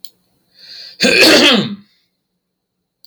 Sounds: Throat clearing